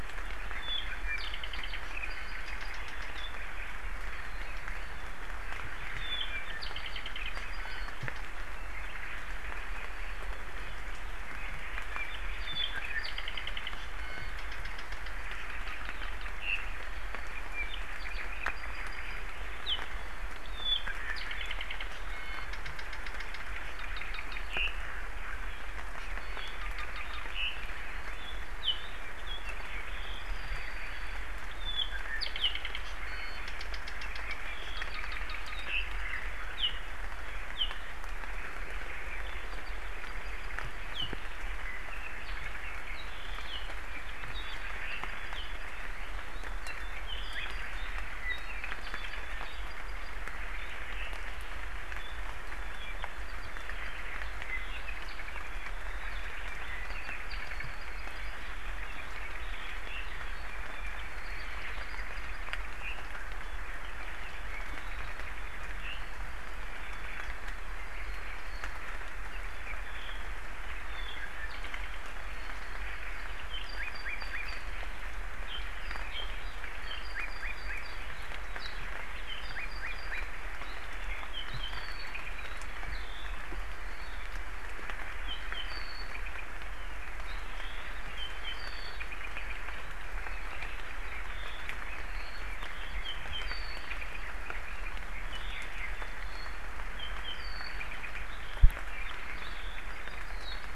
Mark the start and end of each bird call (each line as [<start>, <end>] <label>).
[0.49, 3.29] Apapane (Himatione sanguinea)
[2.09, 2.39] Iiwi (Drepanis coccinea)
[4.39, 4.89] Hawaii Elepaio (Chasiempis sandwichensis)
[5.99, 7.79] Apapane (Himatione sanguinea)
[7.59, 7.89] Iiwi (Drepanis coccinea)
[8.69, 9.19] Hawaii Elepaio (Chasiempis sandwichensis)
[9.59, 10.09] Hawaii Elepaio (Chasiempis sandwichensis)
[11.29, 11.79] Hawaii Elepaio (Chasiempis sandwichensis)
[11.89, 13.69] Apapane (Himatione sanguinea)
[13.99, 14.29] Iiwi (Drepanis coccinea)
[14.39, 16.59] Apapane (Himatione sanguinea)
[17.39, 19.19] Apapane (Himatione sanguinea)
[19.69, 19.79] Apapane (Himatione sanguinea)
[20.49, 21.79] Apapane (Himatione sanguinea)
[22.09, 22.49] Iiwi (Drepanis coccinea)
[22.49, 24.79] Apapane (Himatione sanguinea)
[26.19, 26.59] Iiwi (Drepanis coccinea)
[26.39, 27.59] Apapane (Himatione sanguinea)
[27.69, 28.19] Hawaii Elepaio (Chasiempis sandwichensis)
[28.59, 31.19] Apapane (Himatione sanguinea)
[31.49, 32.79] Apapane (Himatione sanguinea)
[32.99, 33.39] Iiwi (Drepanis coccinea)
[33.49, 36.19] Apapane (Himatione sanguinea)
[35.69, 36.19] Red-billed Leiothrix (Leiothrix lutea)
[36.59, 36.69] Apapane (Himatione sanguinea)
[37.59, 37.69] Apapane (Himatione sanguinea)
[39.09, 40.59] Apapane (Himatione sanguinea)
[40.89, 41.09] Apapane (Himatione sanguinea)
[41.69, 43.09] Apapane (Himatione sanguinea)
[43.49, 45.69] Apapane (Himatione sanguinea)
[46.29, 47.89] Apapane (Himatione sanguinea)
[48.19, 50.09] Apapane (Himatione sanguinea)
[50.59, 51.09] Apapane (Himatione sanguinea)
[51.99, 55.69] Apapane (Himatione sanguinea)
[56.49, 58.29] Apapane (Himatione sanguinea)
[58.59, 62.59] Apapane (Himatione sanguinea)
[61.09, 61.99] Hawaii Elepaio (Chasiempis sandwichensis)
[62.79, 64.69] Red-billed Leiothrix (Leiothrix lutea)
[65.59, 65.99] Red-billed Leiothrix (Leiothrix lutea)
[67.29, 68.59] Apapane (Himatione sanguinea)
[69.29, 70.19] Apapane (Himatione sanguinea)
[70.79, 71.99] Apapane (Himatione sanguinea)
[73.49, 74.59] Apapane (Himatione sanguinea)
[75.49, 77.99] Apapane (Himatione sanguinea)
[78.59, 78.69] Apapane (Himatione sanguinea)
[79.29, 80.19] Apapane (Himatione sanguinea)
[80.59, 83.39] Apapane (Himatione sanguinea)
[85.19, 86.39] Apapane (Himatione sanguinea)
[87.29, 89.49] Apapane (Himatione sanguinea)
[92.99, 96.49] Apapane (Himatione sanguinea)
[96.99, 100.69] Apapane (Himatione sanguinea)